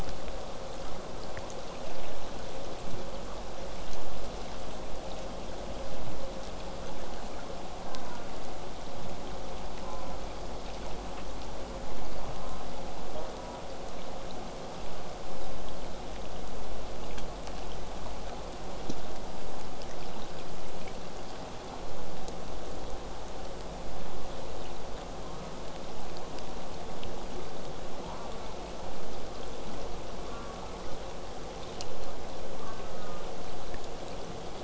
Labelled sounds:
7.8	8.4	killer whale, southern resident, J pod, call S04, 0.15 to 1.8 kHz
9.8	10.3	killer whale, southern resident, J pod, call S04, 0.17 to 1.5 kHz
12.3	12.7	killer whale, southern resident, J pod, call S04, 0.17 to 1.4 kHz
13.1	13.7	killer whale, southern resident, J pod, call S04, 0.35 to 1.5 kHz
25.2	25.6	killer whale, southern resident, J pod, call S04, 0.43 to 1.4 kHz
28.0	28.9	killer whale, southern resident, J pod, call S04, 0.23 to 2.4 kHz
30.3	31.1	killer whale, southern resident, J pod, call S04, 0.35 to 1.5 kHz
32.6	33.3	killer whale, southern resident, J pod, call S04, 0.35 to 2.1 kHz

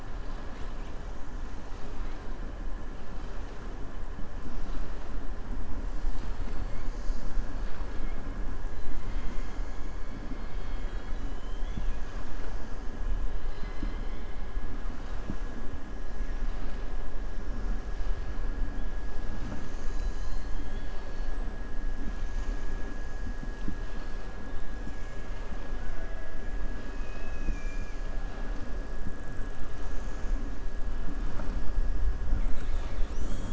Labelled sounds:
26.7	28.0	killer whale, southern resident, 2.2 to 5.3 kHz

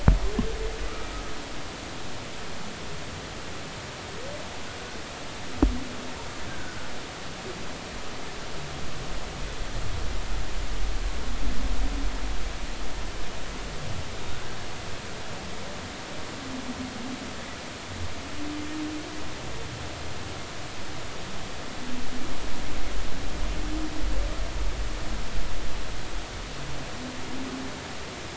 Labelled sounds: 6.5	6.8	humpback whale, 1.4 to 1.6 kHz
14.3	14.6	humpback whale, 1.4 to 1.6 kHz

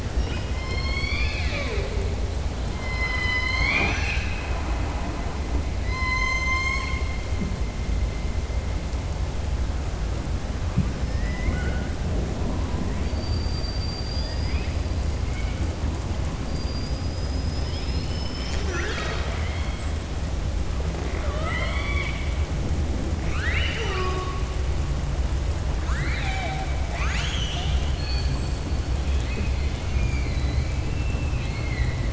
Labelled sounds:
0.5	1.9	killer whale, southern resident, 0.47 to 5.6 kHz
2.8	5.1	killer whale, southern resident, 0.34 to 6.4 kHz
13.0	14.7	killer whale, southern resident, 1.9 to 5.0 kHz
21.1	22.2	killer whale, southern resident, 0.59 to 4.5 kHz
23.2	24.4	killer whale, southern resident, 0.39 to 5.9 kHz
26.8	28.5	killer whale, southern resident, 0.85 to 7.7 kHz
29.8	32.1	killer whale, southern resident, 1.9 to 4.8 kHz

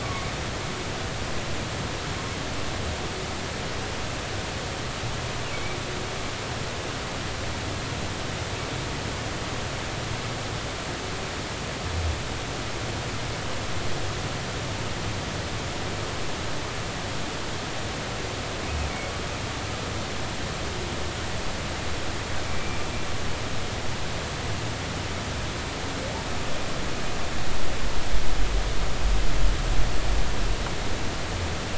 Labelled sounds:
0.0	0.3	humpback whale, 1.1 to 1.2 kHz
5.5	5.8	humpback whale, 2.1 to 2.4 kHz
22.5	22.8	humpback whale, 2.3 to 2.4 kHz

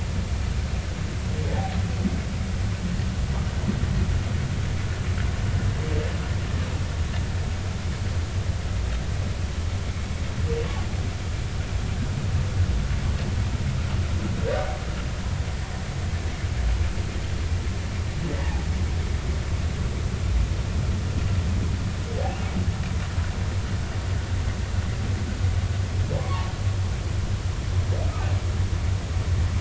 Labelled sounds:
18.4	18.6	humpback whale, 0.80 to 0.99 kHz
26.2	26.5	humpback whale, 0.83 to 1.2 kHz

